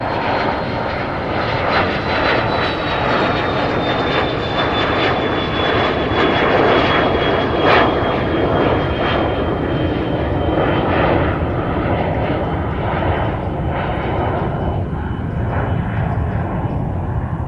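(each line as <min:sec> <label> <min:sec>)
0:00.0 An airplane is taking off. 0:17.5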